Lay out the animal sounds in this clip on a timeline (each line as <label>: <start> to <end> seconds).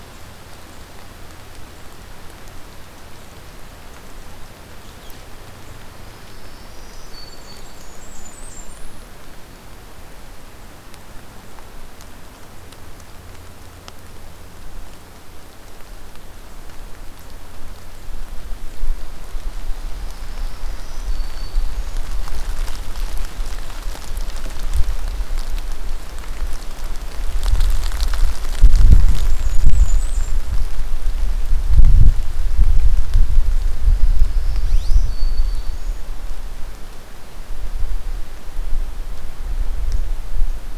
Black-throated Green Warbler (Setophaga virens): 6.0 to 7.9 seconds
Blackburnian Warbler (Setophaga fusca): 7.2 to 9.0 seconds
Black-throated Green Warbler (Setophaga virens): 19.9 to 22.0 seconds
Blackburnian Warbler (Setophaga fusca): 28.7 to 30.4 seconds
Black-throated Green Warbler (Setophaga virens): 33.7 to 36.0 seconds